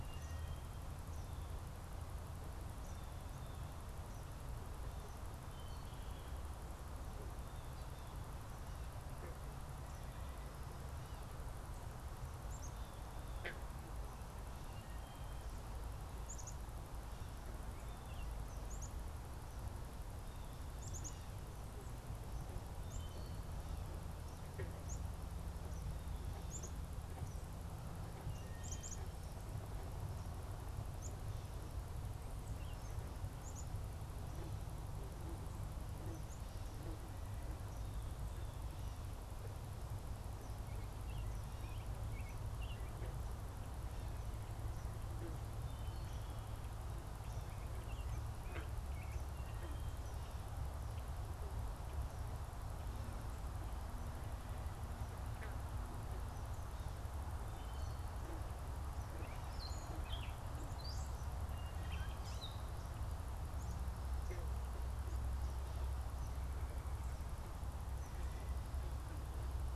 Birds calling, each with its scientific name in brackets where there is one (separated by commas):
Wood Thrush (Hylocichla mustelina), Black-capped Chickadee (Poecile atricapillus), Gray Catbird (Dumetella carolinensis), unidentified bird, Eastern Kingbird (Tyrannus tyrannus)